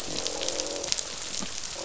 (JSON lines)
{"label": "biophony, croak", "recorder": "SoundTrap 500"}